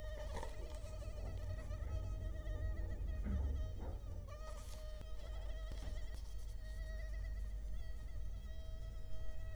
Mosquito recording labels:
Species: Culex quinquefasciatus; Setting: cup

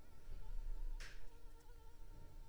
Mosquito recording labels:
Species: Anopheles arabiensis; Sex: female; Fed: unfed; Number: one; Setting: cup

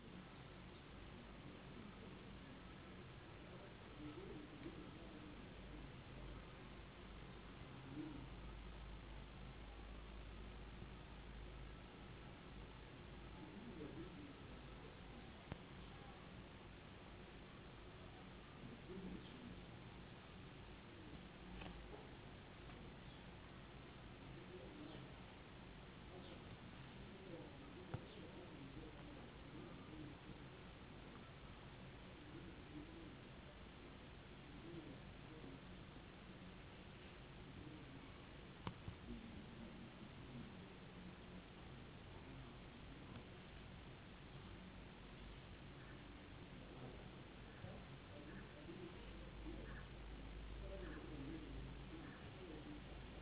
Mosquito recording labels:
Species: no mosquito; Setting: insect culture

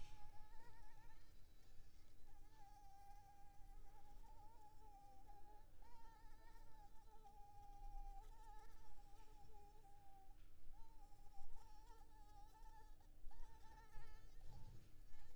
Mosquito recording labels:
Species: Anopheles maculipalpis; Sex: female; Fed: unfed; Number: one; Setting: cup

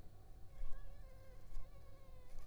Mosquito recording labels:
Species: Anopheles funestus s.s.; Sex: female; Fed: unfed; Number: one; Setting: cup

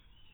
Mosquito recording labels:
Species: mosquito; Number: one; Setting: cup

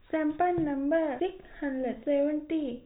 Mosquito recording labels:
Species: no mosquito; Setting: cup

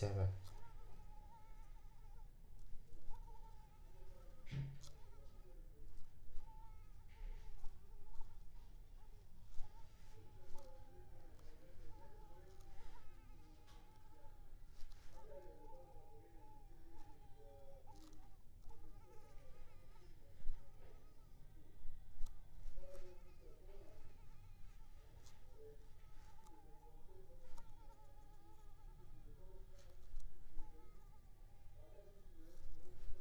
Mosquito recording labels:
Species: Culex pipiens complex; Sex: female; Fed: unfed; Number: one; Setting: cup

